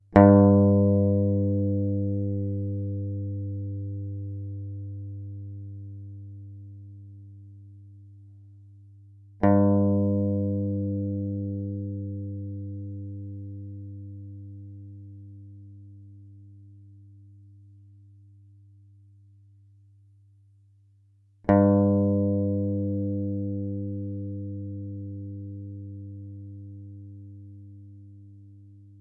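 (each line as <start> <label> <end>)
0.1 A single guitar stroke. 29.0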